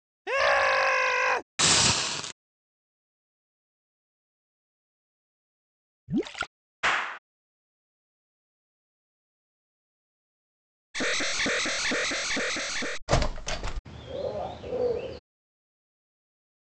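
First, someone screams. Then hissing can be heard. After that, water gurgles. Next, someone claps. Later, an alarm is audible. Then a window opens. After that, a bird is heard.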